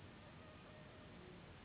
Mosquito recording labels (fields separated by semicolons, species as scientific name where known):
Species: Anopheles gambiae s.s.; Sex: female; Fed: unfed; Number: one; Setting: insect culture